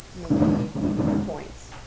{"label": "biophony, growl", "recorder": "SoundTrap 600 or HydroMoth"}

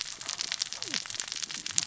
{"label": "biophony, cascading saw", "recorder": "SoundTrap 600 or HydroMoth"}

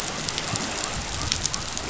{"label": "biophony", "recorder": "SoundTrap 500"}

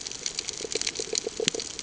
{"label": "ambient", "recorder": "HydroMoth"}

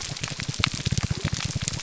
{"label": "biophony, grouper groan", "recorder": "SoundTrap 300"}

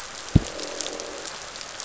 {"label": "biophony, croak", "recorder": "SoundTrap 500"}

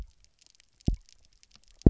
{"label": "biophony, double pulse", "recorder": "SoundTrap 300"}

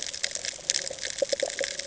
{"label": "ambient", "recorder": "HydroMoth"}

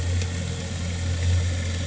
{"label": "anthrophony, boat engine", "recorder": "HydroMoth"}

